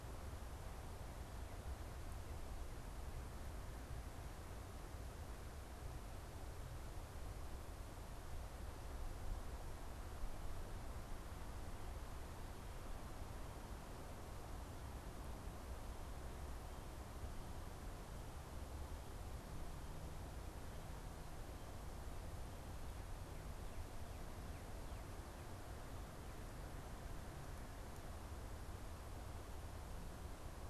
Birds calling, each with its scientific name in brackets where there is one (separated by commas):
Northern Cardinal (Cardinalis cardinalis)